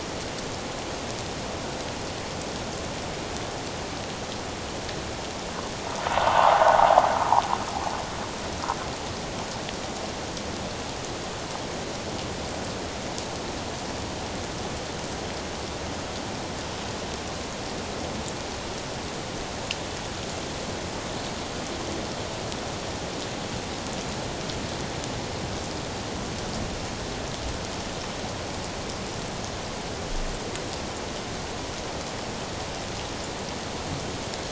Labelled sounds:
6.1	7.0	water noise, 0.78 to 1.6 kHz

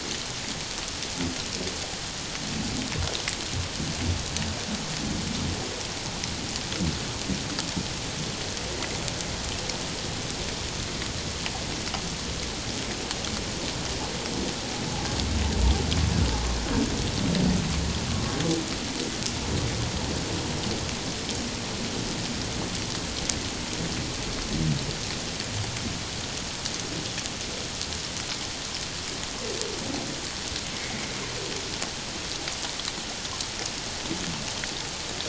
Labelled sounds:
30.7	31.0	humpback whale, 2.1 to 2.3 kHz

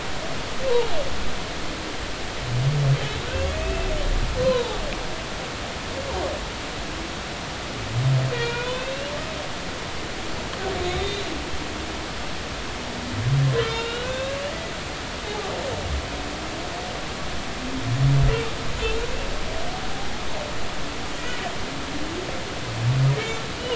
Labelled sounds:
3.5	4.8	humpback whale, 0.80 to 2.7 kHz
8.3	9.0	humpback whale, 0.90 to 3.9 kHz
10.9	11.2	humpback whale, 3.6 to 3.8 kHz
13.6	14.2	humpback whale, 1.3 to 5.2 kHz
15.3	15.5	humpback whale, 0.80 to 0.90 kHz
19.8	20.1	humpback whale, 3.5 to 3.8 kHz
23.1	23.4	humpback whale, 2.1 to 2.3 kHz

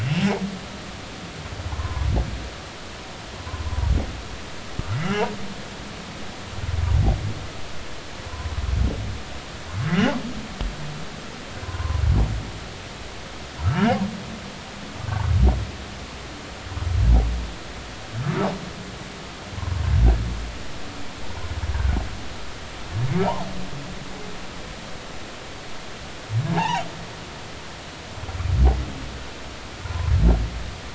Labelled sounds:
0.0	0.2	humpback whale, 2.6 to 3.0 kHz
1.7	2.1	humpback whale, 0.80 to 1.1 kHz
3.7	3.9	humpback whale, 0.86 to 1.1 kHz
5.0	5.3	humpback whale, 0.80 to 3.0 kHz
11.6	12.0	humpback whale, 0.93 to 1.1 kHz
13.6	13.9	humpback whale, 1.2 to 1.6 kHz
15.1	15.3	humpback whale, 1.4 to 1.6 kHz
23.2	23.5	humpback whale, 0.80 to 1.1 kHz
26.5	26.9	humpback whale, 0.80 to 3.0 kHz
29.8	30.1	humpback whale, 0.90 to 1.1 kHz

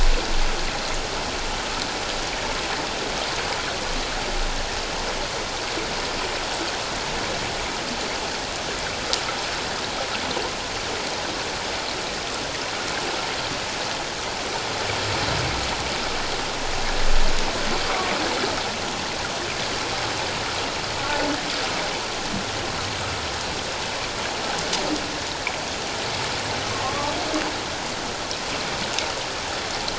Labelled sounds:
26.8	27.1	humpback whale, 1.0 to 1.2 kHz

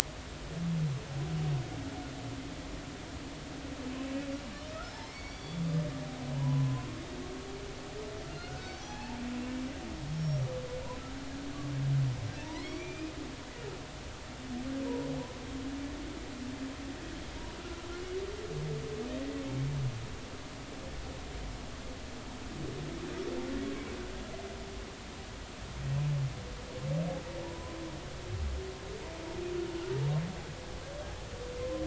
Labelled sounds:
4.8	5.6	humpback whale, 2.0 to 5.8 kHz
6.4	7.0	humpback whale, 0.93 to 1.1 kHz
8.4	9.2	humpback whale, 0.80 to 2.7 kHz
10.2	10.5	humpback whale, 5.4 to 5.8 kHz
12.4	13.1	humpback whale, 0.86 to 6.0 kHz
27.4	27.8	humpback whale, 0.86 to 1.1 kHz

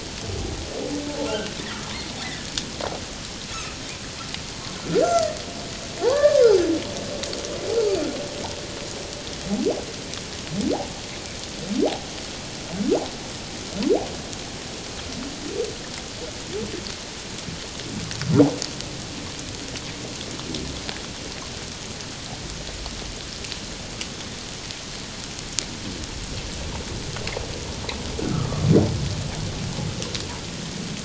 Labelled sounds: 1.2	1.5	humpback whale, 1.3 to 1.6 kHz
3.5	3.8	humpback whale, 1.1 to 2.7 kHz
4.9	5.4	humpback whale, 1.3 to 2.1 kHz
6.0	6.4	humpback whale, 0.78 to 1.8 kHz
28.3	28.6	humpback whale, 1.1 to 1.5 kHz

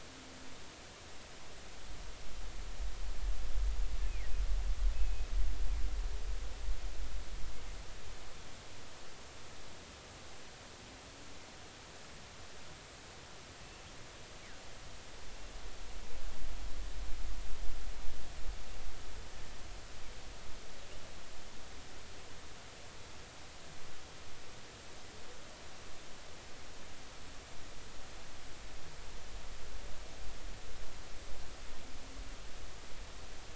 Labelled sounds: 4.9	5.3	killer whale, northern resident, G clan, GI subclan, call N24i, 2.5 to 2.6 kHz

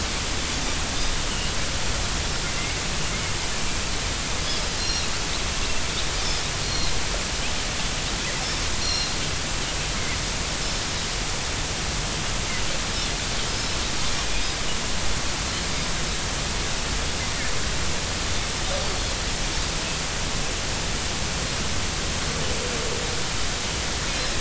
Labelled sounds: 4.4	5.1	Pacific white-sided dolphin, 4.1 to 5.7 kHz
6.2	6.9	Pacific white-sided dolphin, 4.1 to 5.7 kHz
8.8	9.2	Pacific white-sided dolphin, 4.0 to 5.8 kHz
14.2	14.4	Pacific white-sided dolphin, 2.4 to 2.6 kHz
18.8	19.1	Pacific white-sided dolphin, 4.2 to 4.6 kHz

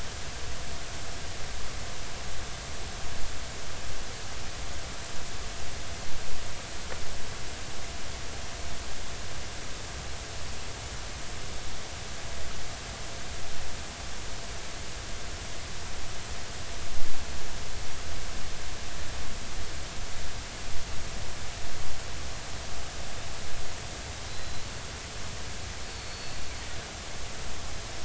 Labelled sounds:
24.3	24.7	small unidentified odontocete, 3.9 to 4.1 kHz
25.9	26.4	small unidentified odontocete, 4.4 to 4.5 kHz

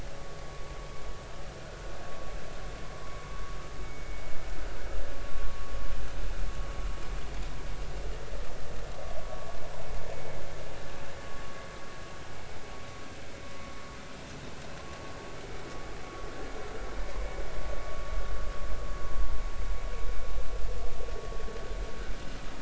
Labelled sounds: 3.8	4.2	vessel noise, 2.1 to 2.3 kHz
5.2	5.7	vessel noise, 1.1 to 1.2 kHz

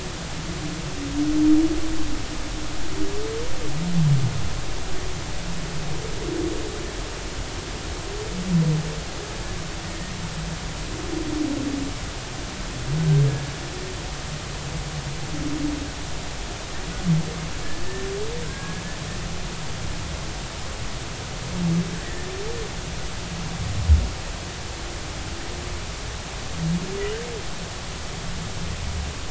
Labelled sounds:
18.4	18.8	humpback whale, 1.4 to 1.7 kHz
22.0	22.3	humpback whale, 1.7 to 2.0 kHz

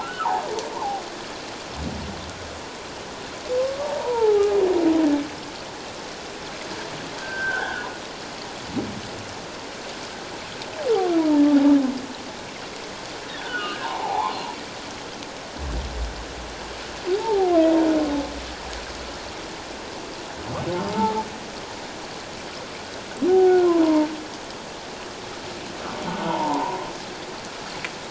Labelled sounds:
0.0	1.0	humpback whale, 0.78 to 1.6 kHz
3.8	4.6	humpback whale, 0.78 to 1.0 kHz
7.2	7.9	humpback whale, 1.3 to 1.8 kHz
11.2	11.5	humpback whale, 0.84 to 1.0 kHz
13.3	14.4	humpback whale, 0.78 to 3.1 kHz
17.1	17.5	humpback whale, 0.78 to 0.97 kHz
20.9	21.2	humpback whale, 0.81 to 0.94 kHz
23.3	24.1	humpback whale, 0.78 to 1.5 kHz
26.3	26.8	humpback whale, 0.84 to 1.1 kHz

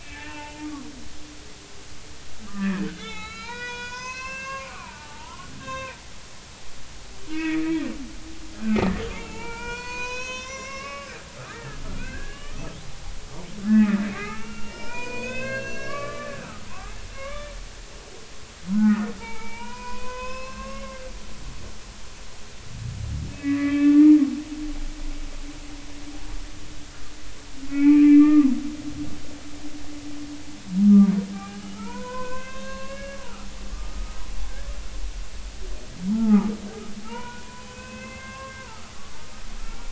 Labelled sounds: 0.0	0.7	humpback whale, 0.83 to 2.8 kHz
2.5	6.0	humpback whale, 0.83 to 6.8 kHz
7.3	7.7	humpback whale, 1.2 to 2.7 kHz
9.2	13.2	humpback whale, 0.83 to 6.8 kHz
13.6	17.5	humpback whale, 0.90 to 6.1 kHz
18.7	21.0	humpback whale, 0.83 to 6.7 kHz
23.3	24.2	humpback whale, 0.86 to 2.7 kHz
27.7	28.6	humpback whale, 0.93 to 2.8 kHz
31.3	33.2	humpback whale, 0.80 to 6.4 kHz
33.7	34.2	humpback whale, 1.1 to 1.3 kHz
36.1	36.5	humpback whale, 0.80 to 1.4 kHz
37.0	39.8	humpback whale, 0.83 to 3.0 kHz

